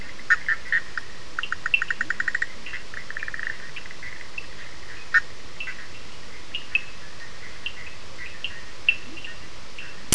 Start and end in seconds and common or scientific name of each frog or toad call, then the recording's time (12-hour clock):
0.2	3.6	Bischoff's tree frog
1.3	10.0	Cochran's lime tree frog
1.9	2.4	Leptodactylus latrans
5.0	5.4	Bischoff's tree frog
8.9	10.1	Leptodactylus latrans
11:00pm